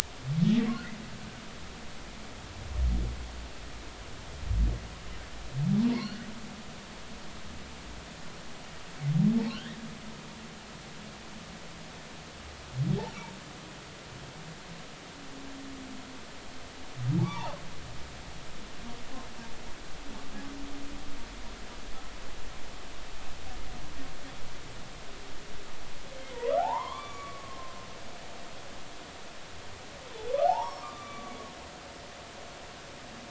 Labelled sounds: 5.9	6.2	humpback whale, 4.0 to 4.5 kHz
9.5	9.8	humpback whale, 1.3 to 3.6 kHz
17.2	17.5	humpback whale, 0.80 to 1.2 kHz
26.3	27.7	humpback whale, 0.80 to 3.6 kHz
30.4	31.3	humpback whale, 0.80 to 5.8 kHz

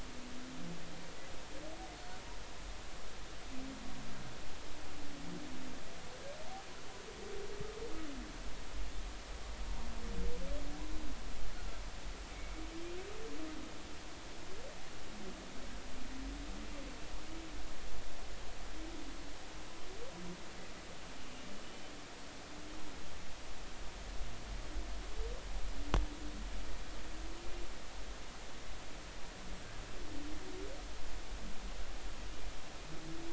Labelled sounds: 1.9	2.2	humpback whale, 4.3 to 4.5 kHz
21.6	21.9	humpback whale, 2.9 to 3.1 kHz

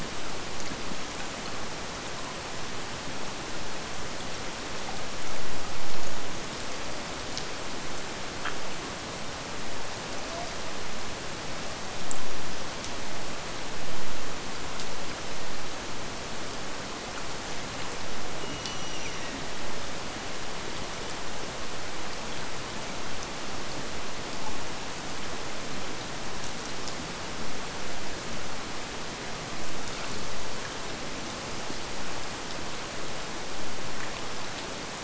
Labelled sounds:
18.4	19.6	killer whale, Bigg's (transient), Gulf of Alaska transient, 1.7 to 6.0 kHz

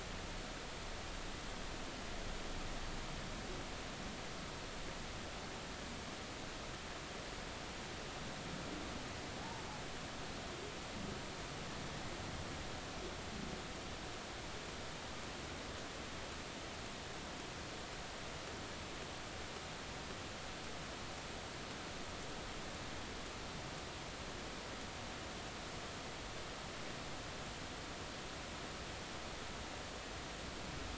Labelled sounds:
9.4	9.6	humpback whale, 0.80 to 0.99 kHz

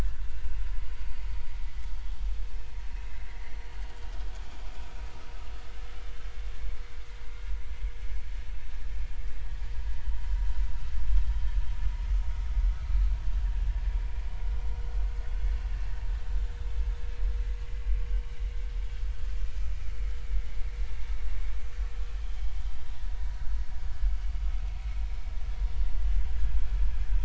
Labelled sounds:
22.2	22.5	vessel noise, 3.0 to 3.2 kHz

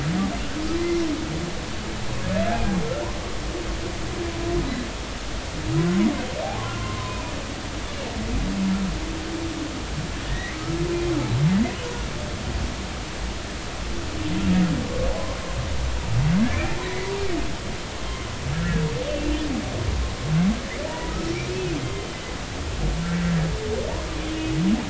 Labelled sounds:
6.8	7.2	humpback whale, 0.96 to 1.1 kHz
10.2	10.8	humpback whale, 1.2 to 2.3 kHz
16.4	17.1	humpback whale, 1.6 to 2.5 kHz
18.5	18.8	humpback whale, 1.6 to 2.0 kHz
20.9	22.2	humpback whale, 0.83 to 5.8 kHz

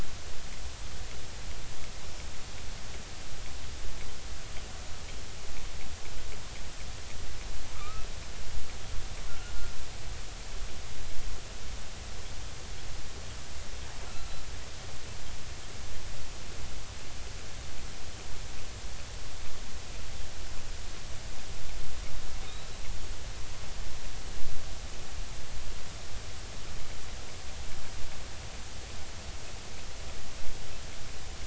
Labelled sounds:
7.7	8.1	killer whale, offshore, 1.1 to 1.3 kHz
9.3	9.5	killer whale, offshore, 1.3 to 1.5 kHz
14.1	15.4	killer whale, offshore, 1.2 to 4.2 kHz
22.4	22.8	killer whale, offshore, 3.6 to 4.0 kHz

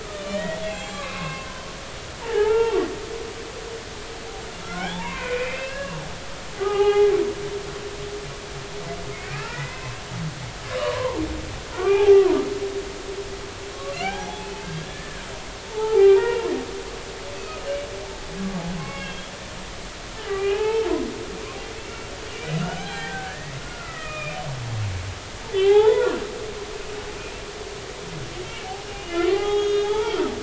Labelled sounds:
0.0	1.7	humpback whale, 0.80 to 7.5 kHz
2.2	2.8	humpback whale, 0.80 to 2.8 kHz
4.6	7.1	humpback whale, 0.80 to 2.9 kHz
9.3	10.0	humpback whale, 1.2 to 2.8 kHz
10.8	11.2	humpback whale, 0.86 to 1.2 kHz
11.7	12.4	humpback whale, 0.80 to 1.7 kHz
13.9	15.2	humpback whale, 0.80 to 3.5 kHz
15.7	16.5	humpback whale, 0.80 to 2.9 kHz
17.3	17.6	humpback whale, 2.4 to 2.6 kHz
18.8	19.3	humpback whale, 1.0 to 3.4 kHz
20.3	20.9	humpback whale, 0.80 to 2.7 kHz
21.8	22.1	humpback whale, 2.6 to 2.8 kHz
22.6	24.4	humpback whale, 0.80 to 4.1 kHz
25.5	26.1	humpback whale, 0.80 to 3.6 kHz
28.5	30.2	humpback whale, 0.80 to 6.7 kHz

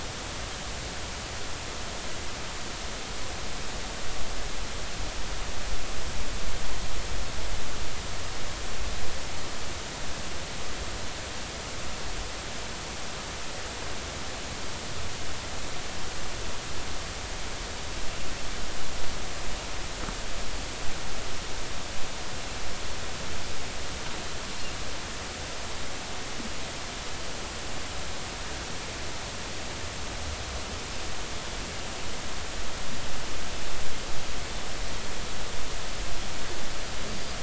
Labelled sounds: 37.1	37.3	Pacific white-sided dolphin, 4.5 to 4.8 kHz

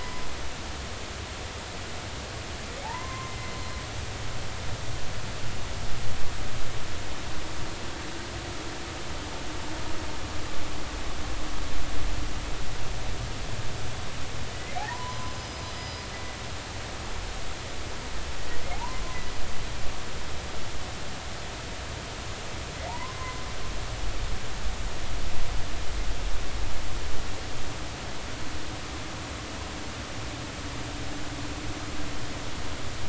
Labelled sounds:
2.8	3.3	humpback whale, 0.80 to 1.1 kHz
14.5	16.0	humpback whale, 0.80 to 5.1 kHz
18.7	19.0	humpback whale, 0.80 to 1.1 kHz
22.9	23.4	humpback whale, 0.80 to 1.1 kHz

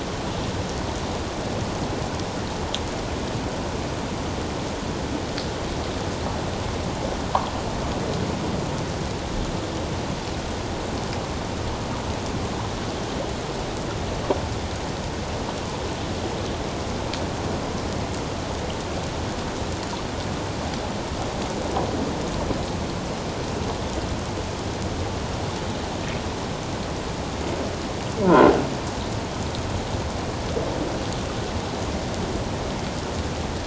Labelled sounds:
28.2	28.5	croaking sound likely from a nearby submerged object, 0.88 to 1.6 kHz

